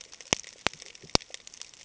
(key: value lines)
label: ambient
recorder: HydroMoth